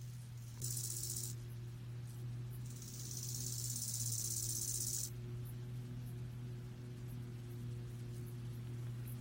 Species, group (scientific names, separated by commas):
Chorthippus biguttulus, Orthoptera